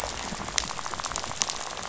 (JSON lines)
{"label": "biophony, rattle", "recorder": "SoundTrap 500"}